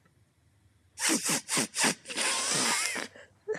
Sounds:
Sniff